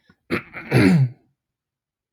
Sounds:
Throat clearing